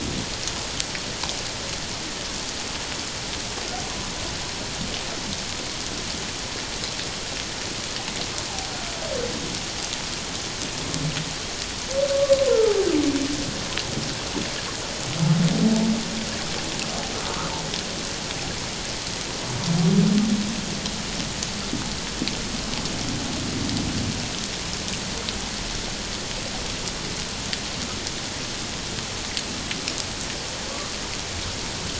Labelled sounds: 12.5	12.8	humpback whale, 1.2 to 1.4 kHz

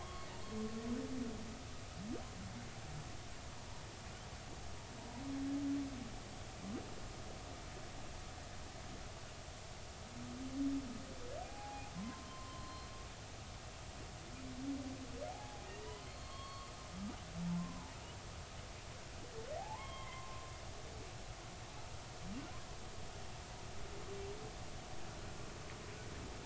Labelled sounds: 0.0	0.3	humpback whale, 0.93 to 1.2 kHz
11.4	12.9	humpback whale, 0.80 to 4.2 kHz
15.3	16.7	humpback whale, 0.80 to 4.4 kHz
17.6	18.0	humpback whale, 0.83 to 1.1 kHz
19.6	20.4	humpback whale, 0.80 to 3.3 kHz

